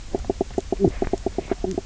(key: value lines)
label: biophony, knock croak
recorder: SoundTrap 300